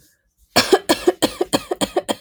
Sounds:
Cough